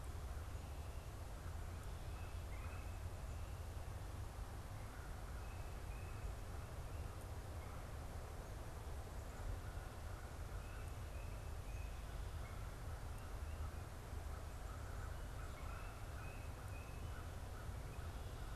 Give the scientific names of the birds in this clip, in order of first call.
Corvus brachyrhynchos, Baeolophus bicolor, Melanerpes carolinus